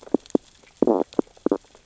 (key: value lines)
label: biophony, stridulation
recorder: SoundTrap 600 or HydroMoth